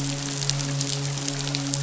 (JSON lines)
{"label": "biophony, midshipman", "recorder": "SoundTrap 500"}